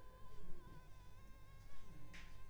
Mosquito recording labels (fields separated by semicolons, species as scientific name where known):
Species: Anopheles arabiensis; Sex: female; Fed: unfed; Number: one; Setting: cup